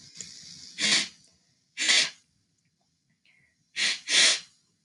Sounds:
Sniff